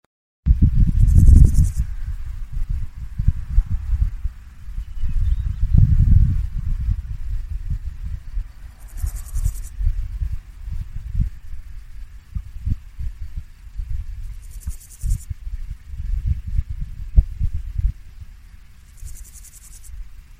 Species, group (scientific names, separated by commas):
Pseudochorthippus parallelus, Orthoptera